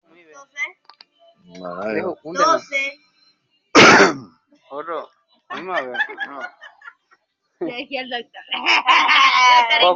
{"expert_labels": [{"quality": "ok", "cough_type": "wet", "dyspnea": false, "wheezing": false, "stridor": false, "choking": false, "congestion": false, "nothing": true, "diagnosis": "lower respiratory tract infection", "severity": "mild"}]}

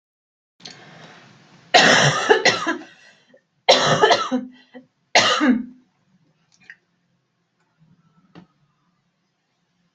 {"expert_labels": [{"quality": "good", "cough_type": "dry", "dyspnea": false, "wheezing": false, "stridor": false, "choking": false, "congestion": false, "nothing": true, "diagnosis": "upper respiratory tract infection", "severity": "mild"}], "age": 29, "gender": "female", "respiratory_condition": false, "fever_muscle_pain": true, "status": "symptomatic"}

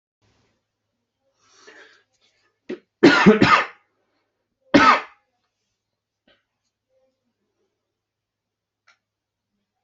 {"expert_labels": [{"quality": "good", "cough_type": "dry", "dyspnea": false, "wheezing": false, "stridor": false, "choking": false, "congestion": false, "nothing": true, "diagnosis": "healthy cough", "severity": "pseudocough/healthy cough"}], "age": 40, "gender": "male", "respiratory_condition": false, "fever_muscle_pain": true, "status": "symptomatic"}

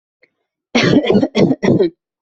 {"expert_labels": [{"quality": "poor", "cough_type": "unknown", "dyspnea": false, "wheezing": false, "stridor": false, "choking": false, "congestion": false, "nothing": true, "diagnosis": "healthy cough", "severity": "pseudocough/healthy cough"}], "age": 23, "gender": "female", "respiratory_condition": false, "fever_muscle_pain": true, "status": "symptomatic"}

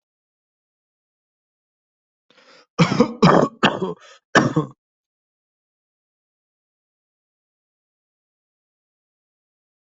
{"expert_labels": [{"quality": "good", "cough_type": "dry", "dyspnea": false, "wheezing": false, "stridor": false, "choking": false, "congestion": false, "nothing": true, "diagnosis": "healthy cough", "severity": "pseudocough/healthy cough"}], "age": 20, "gender": "female", "respiratory_condition": false, "fever_muscle_pain": false, "status": "healthy"}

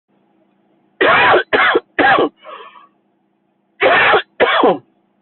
{"expert_labels": [{"quality": "ok", "cough_type": "dry", "dyspnea": false, "wheezing": false, "stridor": false, "choking": false, "congestion": false, "nothing": true, "diagnosis": "COVID-19", "severity": "mild"}], "age": 39, "gender": "male", "respiratory_condition": false, "fever_muscle_pain": false, "status": "symptomatic"}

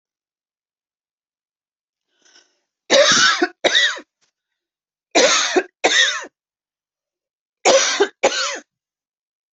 {"expert_labels": [{"quality": "good", "cough_type": "dry", "dyspnea": false, "wheezing": false, "stridor": true, "choking": false, "congestion": false, "nothing": false, "diagnosis": "COVID-19", "severity": "mild"}], "age": 46, "gender": "female", "respiratory_condition": false, "fever_muscle_pain": false, "status": "COVID-19"}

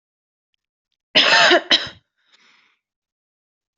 {"expert_labels": [{"quality": "good", "cough_type": "dry", "dyspnea": false, "wheezing": false, "stridor": false, "choking": false, "congestion": false, "nothing": true, "diagnosis": "COVID-19", "severity": "mild"}], "age": 24, "gender": "female", "respiratory_condition": false, "fever_muscle_pain": false, "status": "healthy"}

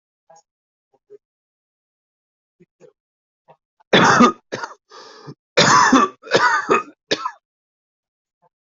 {"expert_labels": [{"quality": "good", "cough_type": "wet", "dyspnea": false, "wheezing": false, "stridor": false, "choking": false, "congestion": false, "nothing": true, "diagnosis": "lower respiratory tract infection", "severity": "mild"}], "age": 59, "gender": "male", "respiratory_condition": true, "fever_muscle_pain": false, "status": "symptomatic"}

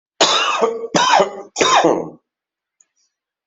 {"expert_labels": [{"quality": "ok", "cough_type": "dry", "dyspnea": false, "wheezing": true, "stridor": false, "choking": false, "congestion": false, "nothing": false, "diagnosis": "COVID-19", "severity": "mild"}], "age": 54, "gender": "male", "respiratory_condition": false, "fever_muscle_pain": false, "status": "healthy"}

